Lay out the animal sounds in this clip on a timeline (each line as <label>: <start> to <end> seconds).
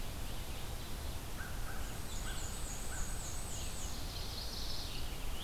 Ovenbird (Seiurus aurocapilla): 0.0 to 1.3 seconds
Red-eyed Vireo (Vireo olivaceus): 0.0 to 5.4 seconds
American Crow (Corvus brachyrhynchos): 1.3 to 3.1 seconds
Black-and-white Warbler (Mniotilta varia): 1.8 to 4.0 seconds
Ovenbird (Seiurus aurocapilla): 3.2 to 4.9 seconds
Chestnut-sided Warbler (Setophaga pensylvanica): 3.8 to 5.1 seconds
Scarlet Tanager (Piranga olivacea): 4.9 to 5.4 seconds